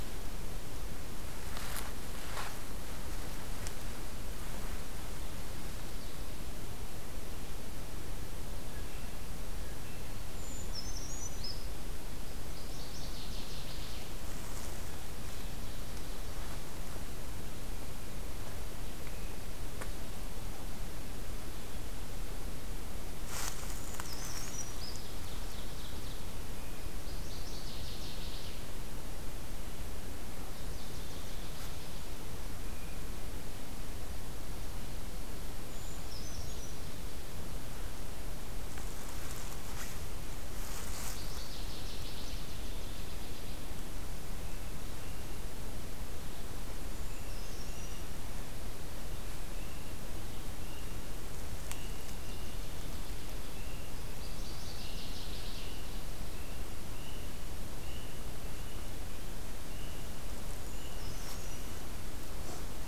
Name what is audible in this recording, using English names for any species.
Brown Creeper, Northern Waterthrush, Ovenbird